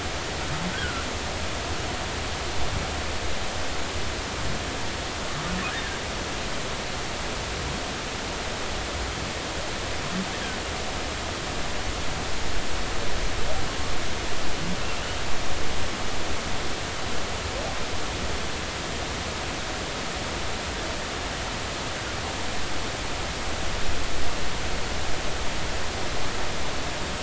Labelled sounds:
0.7	1.1	humpback whale, 1.3 to 1.7 kHz
5.7	6.0	humpback whale, 1.5 to 1.9 kHz

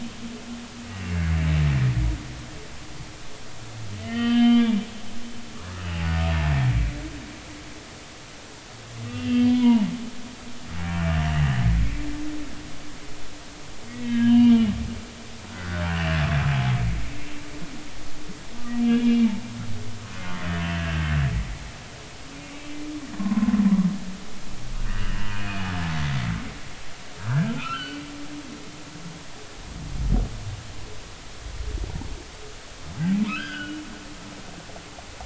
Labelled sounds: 1.0	1.3	humpback whale, 2.7 to 2.8 kHz
4.0	4.7	humpback whale, 1.1 to 3.8 kHz
5.8	6.1	humpback whale, 2.5 to 3.0 kHz
9.1	9.9	humpback whale, 0.83 to 3.3 kHz
11.0	11.2	humpback whale, 2.7 to 2.9 kHz
13.9	14.7	humpback whale, 1.6 to 3.1 kHz
15.5	16.2	humpback whale, 1.3 to 2.9 kHz
18.8	19.3	humpback whale, 2.3 to 3.4 kHz
22.5	23.5	humpback whale, 0.96 to 2.4 kHz
24.9	25.6	humpback whale, 2.4 to 3.0 kHz
27.3	28.0	humpback whale, 1.2 to 4.6 kHz
33.3	33.8	humpback whale, 1.2 to 3.5 kHz

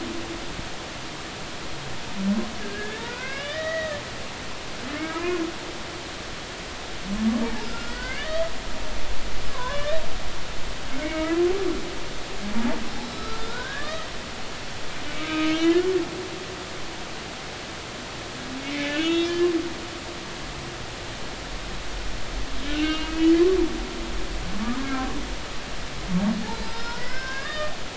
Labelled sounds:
2.6	4.0	humpback whale, 0.96 to 3.2 kHz
5.0	5.4	humpback whale, 0.93 to 2.6 kHz
7.4	8.4	humpback whale, 0.80 to 2.0 kHz
9.5	10.0	humpback whale, 0.93 to 2.0 kHz
11.0	11.4	humpback whale, 1.2 to 2.3 kHz
13.0	14.1	humpback whale, 1.1 to 5.3 kHz
15.1	15.8	humpback whale, 1.2 to 3.1 kHz
18.6	19.3	humpback whale, 1.7 to 3.8 kHz
20.0	20.4	humpback whale, 3.2 to 3.5 kHz
22.7	23.3	humpback whale, 1.4 to 3.8 kHz
24.8	25.1	humpback whale, 1.5 to 1.7 kHz
26.5	27.8	humpback whale, 0.99 to 5.6 kHz

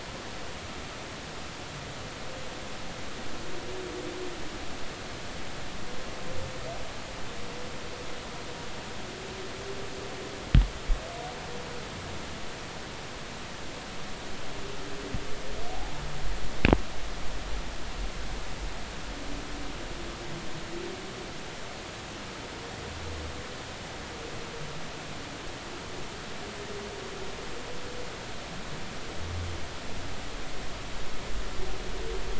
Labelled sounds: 15.7	16.0	humpback whale, 0.80 to 0.93 kHz

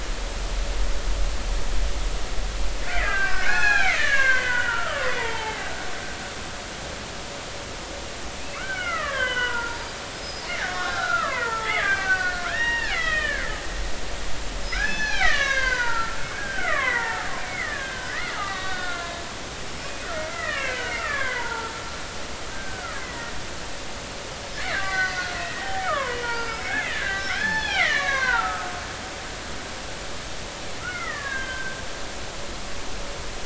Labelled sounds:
2.8	5.7	killer whale, Bigg's (transient), 0.80 to 6.3 kHz
8.5	9.8	killer whale, Bigg's (transient), 0.90 to 3.4 kHz
10.1	13.5	killer whale, Bigg's (transient), 0.80 to 5.7 kHz
14.6	21.8	killer whale, Bigg's (transient), 0.80 to 6.6 kHz
22.5	23.4	killer whale, Bigg's (transient), 1.2 to 2.1 kHz
24.6	28.7	killer whale, Bigg's (transient), 0.80 to 6.3 kHz
30.8	31.8	killer whale, Bigg's (transient), 1.0 to 3.3 kHz

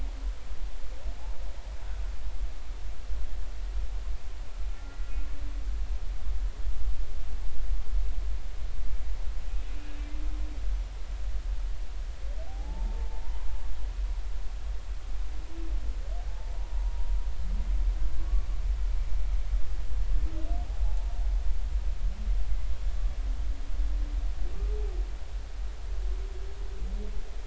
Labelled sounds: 4.7	5.1	humpback whale, 1.3 to 2.0 kHz
9.5	9.7	humpback whale, 2.5 to 2.7 kHz
12.5	13.5	humpback whale, 0.80 to 1.1 kHz
16.5	17.2	humpback whale, 0.83 to 1.0 kHz
18.2	18.5	humpback whale, 1.0 to 1.2 kHz

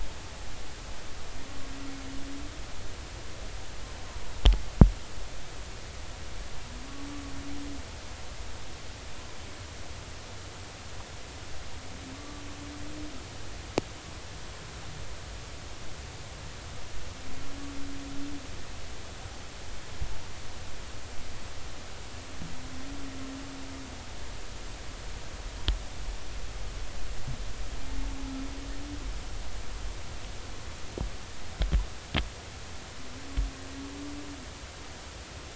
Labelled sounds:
12.1	12.4	humpback whale, 1.1 to 1.2 kHz

